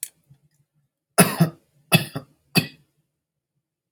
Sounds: Cough